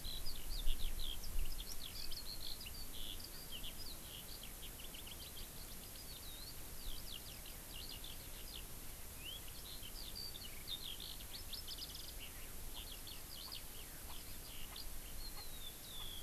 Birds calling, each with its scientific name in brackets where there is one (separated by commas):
Erckel's Francolin (Pternistis erckelii), Eurasian Skylark (Alauda arvensis)